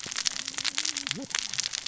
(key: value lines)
label: biophony, cascading saw
recorder: SoundTrap 600 or HydroMoth